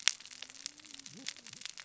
{"label": "biophony, cascading saw", "recorder": "SoundTrap 600 or HydroMoth"}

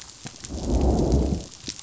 {"label": "biophony, growl", "recorder": "SoundTrap 500"}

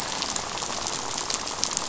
{"label": "biophony, rattle", "recorder": "SoundTrap 500"}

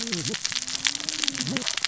{"label": "biophony, cascading saw", "recorder": "SoundTrap 600 or HydroMoth"}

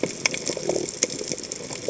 {"label": "biophony", "recorder": "HydroMoth"}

